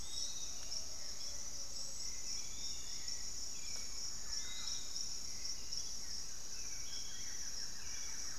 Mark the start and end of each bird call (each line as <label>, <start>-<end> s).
Hauxwell's Thrush (Turdus hauxwelli), 0.0-8.4 s
Piratic Flycatcher (Legatus leucophaius), 0.0-8.4 s
Thrush-like Wren (Campylorhynchus turdinus), 3.9-8.4 s
Buff-throated Woodcreeper (Xiphorhynchus guttatus), 5.7-8.4 s